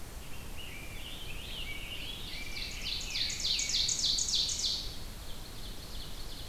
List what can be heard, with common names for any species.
Rose-breasted Grosbeak, Scarlet Tanager, Ovenbird